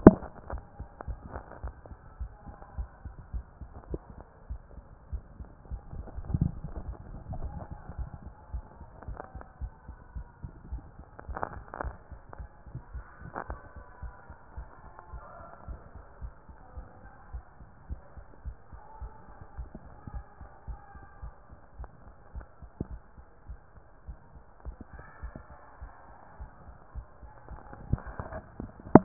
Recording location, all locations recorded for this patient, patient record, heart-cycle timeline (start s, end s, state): mitral valve (MV)
pulmonary valve (PV)+tricuspid valve (TV)+mitral valve (MV)
#Age: nan
#Sex: Female
#Height: nan
#Weight: nan
#Pregnancy status: True
#Murmur: Absent
#Murmur locations: nan
#Most audible location: nan
#Systolic murmur timing: nan
#Systolic murmur shape: nan
#Systolic murmur grading: nan
#Systolic murmur pitch: nan
#Systolic murmur quality: nan
#Diastolic murmur timing: nan
#Diastolic murmur shape: nan
#Diastolic murmur grading: nan
#Diastolic murmur pitch: nan
#Diastolic murmur quality: nan
#Outcome: Normal
#Campaign: 2014 screening campaign
0.20	0.30	systole
0.30	0.34	S2
0.34	0.50	diastole
0.50	0.62	S1
0.62	0.78	systole
0.78	0.88	S2
0.88	1.06	diastole
1.06	1.20	S1
1.20	1.34	systole
1.34	1.44	S2
1.44	1.62	diastole
1.62	1.74	S1
1.74	1.90	systole
1.90	1.98	S2
1.98	2.18	diastole
2.18	2.30	S1
2.30	2.46	systole
2.46	2.56	S2
2.56	2.76	diastole
2.76	2.88	S1
2.88	3.04	systole
3.04	3.14	S2
3.14	3.32	diastole
3.32	3.44	S1
3.44	3.60	systole
3.60	3.70	S2
3.70	3.90	diastole
3.90	4.02	S1
4.02	4.18	systole
4.18	4.28	S2
4.28	4.48	diastole
4.48	4.62	S1
4.62	4.78	systole
4.78	4.90	S2
4.90	5.10	diastole
5.10	5.22	S1
5.22	5.38	systole
5.38	5.50	S2
5.50	5.70	diastole
5.70	5.82	S1
5.82	5.96	systole
5.96	6.08	S2
6.08	6.26	diastole
6.26	6.40	S1
6.40	6.54	systole
6.54	6.66	S2
6.66	6.84	diastole
6.84	6.96	S1
6.96	7.10	systole
7.10	7.18	S2
7.18	7.30	diastole
7.30	7.52	S1
7.52	7.70	systole
7.70	7.80	S2
7.80	7.98	diastole
7.98	8.10	S1
8.10	8.24	systole
8.24	8.34	S2
8.34	8.52	diastole
8.52	8.66	S1
8.66	8.80	systole
8.80	8.90	S2
8.90	9.08	diastole
9.08	9.20	S1
9.20	9.36	systole
9.36	9.46	S2
9.46	9.62	diastole
9.62	9.72	S1
9.72	9.88	systole
9.88	9.96	S2
9.96	10.14	diastole
10.14	10.26	S1
10.26	10.42	systole
10.42	10.52	S2
10.52	10.70	diastole
10.70	10.84	S1
10.84	11.00	systole
11.00	11.08	S2
11.08	11.28	diastole
11.28	11.42	S1
11.42	11.54	systole
11.54	11.64	S2
11.64	11.80	diastole
11.80	11.94	S1
11.94	12.10	systole
12.10	12.20	S2
12.20	12.38	diastole
12.38	12.48	S1
12.48	12.64	systole
12.64	12.74	S2
12.74	12.92	diastole
12.92	13.04	S1
13.04	13.22	systole
13.22	13.32	S2
13.32	13.50	diastole
13.50	13.60	S1
13.60	13.76	systole
13.76	13.86	S2
13.86	14.04	diastole
14.04	14.14	S1
14.14	14.30	systole
14.30	14.38	S2
14.38	14.56	diastole
14.56	14.68	S1
14.68	14.84	systole
14.84	14.92	S2
14.92	15.12	diastole
15.12	15.22	S1
15.22	15.38	systole
15.38	15.48	S2
15.48	15.68	diastole
15.68	15.78	S1
15.78	15.94	systole
15.94	16.04	S2
16.04	16.22	diastole
16.22	16.32	S1
16.32	16.48	systole
16.48	16.56	S2
16.56	16.76	diastole
16.76	16.86	S1
16.86	17.02	systole
17.02	17.12	S2
17.12	17.32	diastole
17.32	17.44	S1
17.44	17.60	systole
17.60	17.70	S2
17.70	17.90	diastole
17.90	18.02	S1
18.02	18.18	systole
18.18	18.26	S2
18.26	18.44	diastole
18.44	18.56	S1
18.56	18.72	systole
18.72	18.82	S2
18.82	19.00	diastole
19.00	19.12	S1
19.12	19.28	systole
19.28	19.36	S2
19.36	19.56	diastole
19.56	19.68	S1
19.68	19.84	systole
19.84	19.94	S2
19.94	20.12	diastole
20.12	20.24	S1
20.24	20.40	systole
20.40	20.50	S2
20.50	20.68	diastole
20.68	20.80	S1
20.80	20.96	systole
20.96	21.06	S2
21.06	21.24	diastole
21.24	21.34	S1
21.34	21.50	systole
21.50	21.60	S2
21.60	21.78	diastole
21.78	21.88	S1
21.88	22.04	systole
22.04	22.14	S2
22.14	22.34	diastole
22.34	22.46	S1
22.46	22.62	systole
22.62	22.70	S2
22.70	22.88	diastole
22.88	23.00	S1
23.00	23.18	systole
23.18	23.28	S2
23.28	23.48	diastole
23.48	23.58	S1
23.58	23.76	systole
23.76	23.86	S2
23.86	24.06	diastole
24.06	24.16	S1
24.16	24.34	systole
24.34	24.44	S2
24.44	24.64	diastole
24.64	24.76	S1
24.76	24.94	systole
24.94	25.04	S2
25.04	25.22	diastole
25.22	25.34	S1
25.34	25.50	systole
25.50	25.60	S2
25.60	25.80	diastole
25.80	25.90	S1
25.90	26.08	systole
26.08	26.18	S2
26.18	26.38	diastole
26.38	26.50	S1
26.50	26.66	systole
26.66	26.76	S2
26.76	26.96	diastole
26.96	27.06	S1
27.06	27.22	systole
27.22	27.32	S2
27.32	27.52	diastole
27.52	27.66	S1
27.66	27.88	systole
27.88	28.02	S2
28.02	28.24	diastole
28.24	28.42	S1
28.42	28.60	systole
28.60	28.72	S2
28.72	28.92	diastole
28.92	29.04	S1